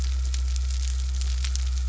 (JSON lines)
{"label": "anthrophony, boat engine", "recorder": "SoundTrap 300"}